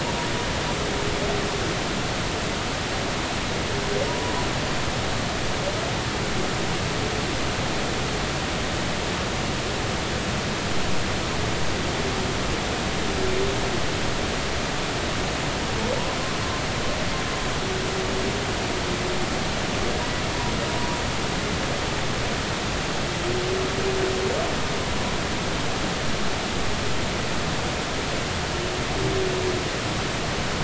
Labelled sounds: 4.1	4.3	humpback whale, 0.90 to 1.0 kHz

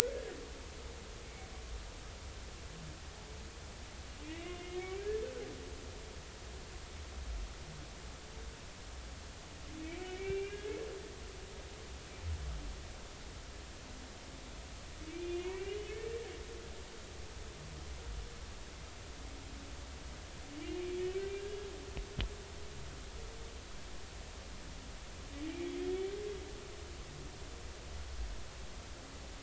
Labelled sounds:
4.2	5.1	humpback whale, 1.9 to 2.9 kHz
10.0	10.8	humpback whale, 1.6 to 2.9 kHz
15.1	16.2	humpback whale, 1.7 to 3.1 kHz

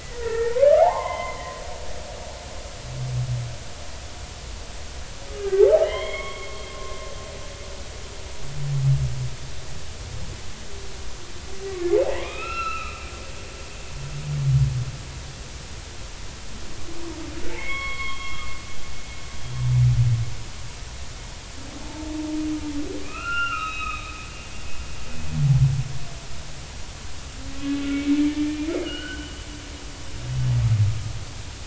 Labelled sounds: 0.0	1.6	humpback whale, 0.80 to 3.2 kHz
5.4	6.6	humpback whale, 0.96 to 3.3 kHz
7.7	8.0	humpback whale, 1.0 to 1.1 kHz
11.7	13.1	humpback whale, 0.80 to 5.5 kHz
17.4	18.5	humpback whale, 1.0 to 4.4 kHz
21.8	22.1	humpback whale, 0.83 to 0.99 kHz
23.0	24.1	humpback whale, 1.2 to 4.0 kHz
27.7	29.3	humpback whale, 1.4 to 3.1 kHz

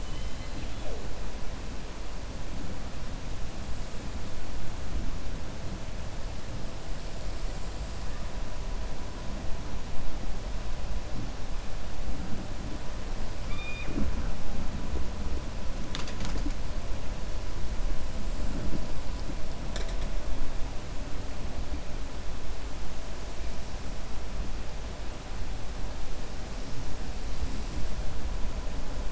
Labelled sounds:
0.0	0.8	killer whale, 2.0 to 4.1 kHz

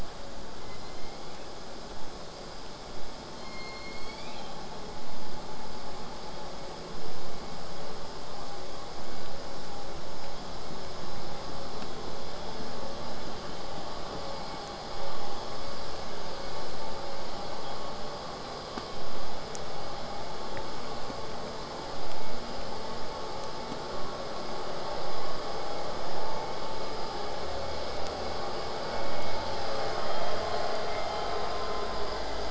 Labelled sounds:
0.6	1.8	killer whale, southern resident, J pod, call S01, 1.8 to 4.7 kHz
3.3	4.8	killer whale, southern resident, J pod, call S01, 1.9 to 8.0 kHz

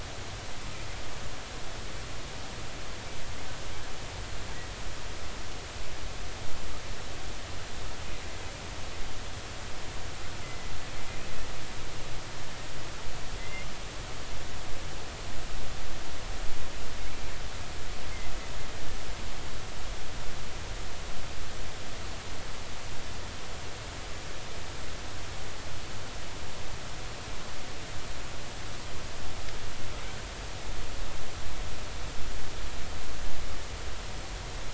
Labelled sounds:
10.4	10.7	killer whale, 2.0 to 2.1 kHz
13.4	13.7	killer whale, 2.0 to 2.2 kHz

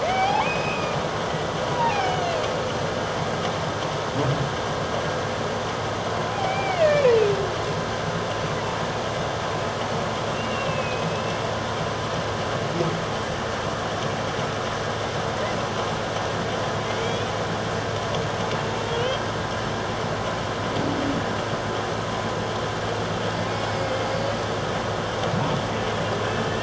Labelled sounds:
0.0	1.0	humpback whale, 0.78 to 5.2 kHz
1.3	2.2	humpback whale, 0.78 to 2.8 kHz
6.3	7.1	humpback whale, 0.78 to 3.1 kHz
10.3	11.4	humpback whale, 2.5 to 2.9 kHz
17.0	17.3	humpback whale, 2.2 to 3.5 kHz
19.0	19.2	humpback whale, 2.8 to 3.3 kHz
23.7	24.1	humpback whale, 2.0 to 2.3 kHz

